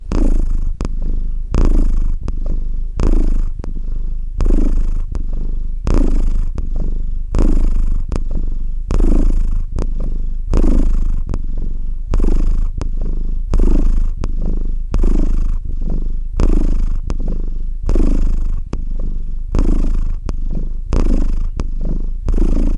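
0.0s A cat is purring repeatedly indoors. 22.8s

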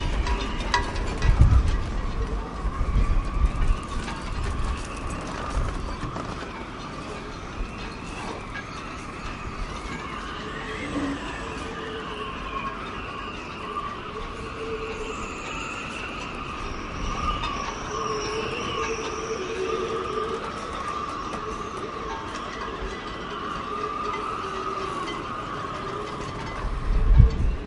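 0.0s Strong wind blows against a sailboat with metal and rope sounds as the rigging moves. 27.5s
0.1s Strong wind hitting a sailboat mast and ropes, accompanied by metal clinks and tension sounds. 2.2s
8.0s Strong wind gust hits a sailboat, causing metal and rope to move. 19.4s

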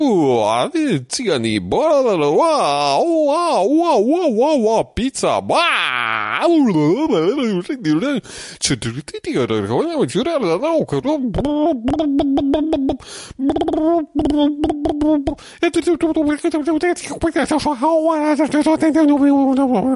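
0.0s A man is speaking. 20.0s

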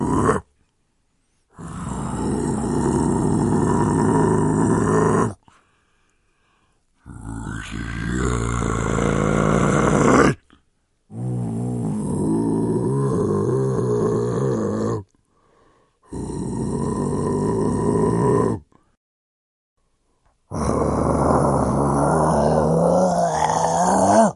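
1.2s A monster is yelling rhythmically. 24.4s
6.8s A ghost is yelling. 11.0s

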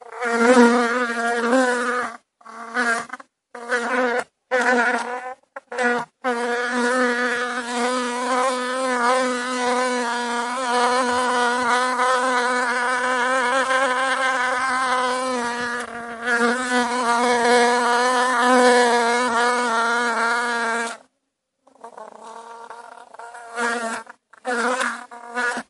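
0.2s An insect buzzes loudly while flying inside an enclosed space. 21.0s
21.8s Bee buzzing faintly and occasionally. 25.7s

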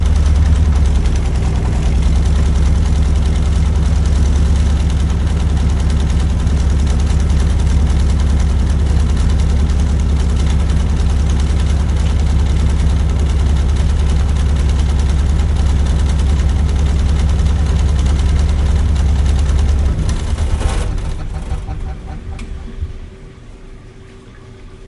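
0.0s A washing machine rattles harshly. 23.0s

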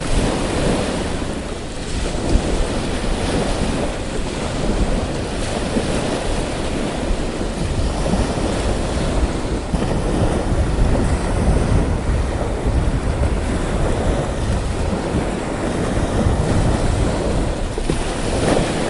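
0.1s Waves crashing rhythmically onto the shore. 18.9s

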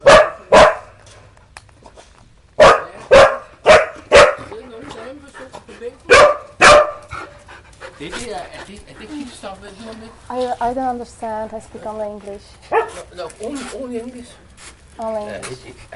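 0.0s A dog barks and sniffs someone outdoors. 8.3s
8.4s Man and woman talking with a dog barking in the background. 16.0s
12.6s A dog barks outdoors. 13.1s

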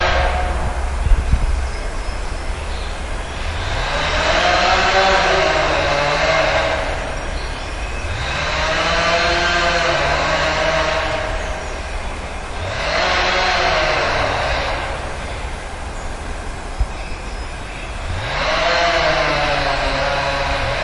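3.5s A power saw revs loudly with a sharp mechanical cutting sound. 7.2s
8.2s A power saw operates with a steady buzzing sound. 11.6s
12.6s A power saw runs briefly with a consistent buzzing sound. 15.1s
18.0s A power saw operates briefly with a mechanical buzzing sound that lowers in pitch toward the end. 20.8s

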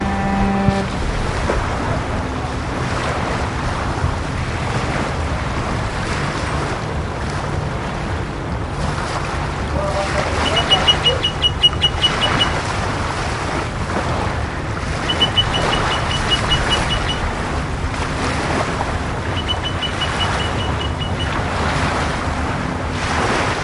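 0.0s A ship horn sounds loudly. 1.1s
0.0s Waves crash against a wall. 23.6s
10.1s A bird is singing repeatedly. 12.6s
15.0s A bird is singing repeatedly. 17.5s
19.0s A bird is singing repeatedly. 21.6s

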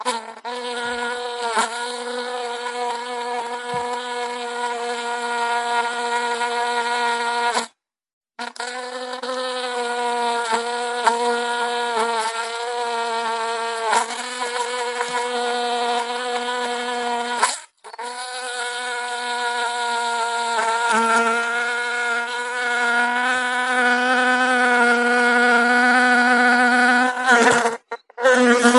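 0.0s A bee buzzes continuously. 7.8s
8.4s A bee buzzes and flies continuously with brief pauses as it lands for a short moment. 28.8s

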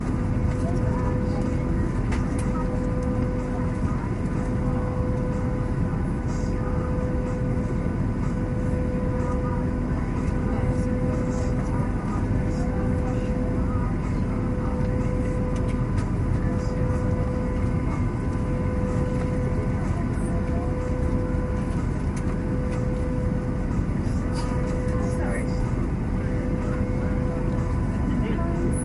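0.0s Muffled music is playing in the background. 28.8s
0.0s Occasional clattering sounds. 28.8s
0.0s People are talking in the background. 28.8s
0.0s The engines of an airplane are steadily roaring muffledly. 28.8s

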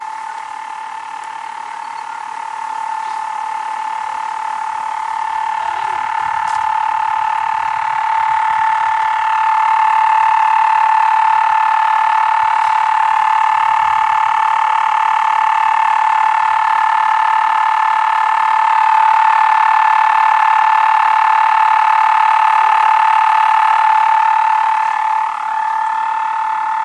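0.0s Toads croaking loudly and continuously. 26.8s
2.6s A bird sings in the distance. 4.0s
6.0s Footsteps on grass. 7.9s
6.0s People are speaking in the distance. 7.9s
13.2s A bird sings in the distance. 15.9s
18.2s A bird sings in the distance. 21.4s
22.2s A dog barks in the distance. 24.0s

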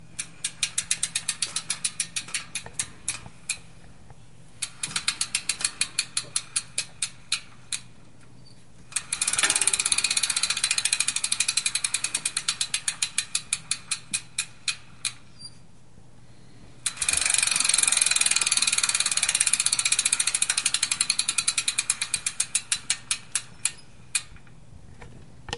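0.1s The steady, mechanical, sharp clicking of a bike gear turning. 3.6s
4.6s The steady, mechanical, sharp clicking of a bike gear turning. 7.9s
8.9s The steady, mechanical, sharp clicking of a bike gear gradually slowing down while being turned. 15.2s
15.4s A soft, sharp, high-pitched beep sounds. 15.6s
16.8s The steady, mechanical, sharp clicking of a bike gear gradually slowing down while being turned. 24.3s
25.0s A soft thump. 25.1s
25.4s A sharp thump is heard. 25.6s

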